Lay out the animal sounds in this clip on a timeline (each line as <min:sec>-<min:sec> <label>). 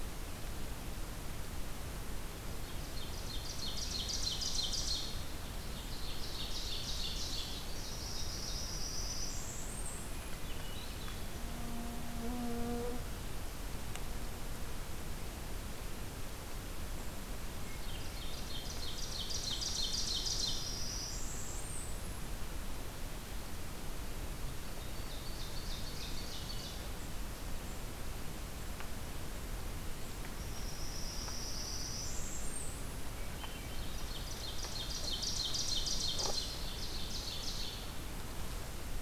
0:02.9-0:05.2 Ovenbird (Seiurus aurocapilla)
0:05.6-0:07.6 Ovenbird (Seiurus aurocapilla)
0:07.5-0:10.4 Blackburnian Warbler (Setophaga fusca)
0:10.2-0:11.4 Swainson's Thrush (Catharus ustulatus)
0:17.9-0:20.5 Ovenbird (Seiurus aurocapilla)
0:20.0-0:22.4 Blackburnian Warbler (Setophaga fusca)
0:24.7-0:27.0 Ovenbird (Seiurus aurocapilla)
0:30.3-0:33.1 Blackburnian Warbler (Setophaga fusca)
0:33.0-0:34.1 Swainson's Thrush (Catharus ustulatus)
0:33.9-0:37.9 Ovenbird (Seiurus aurocapilla)